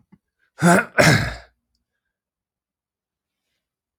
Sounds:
Throat clearing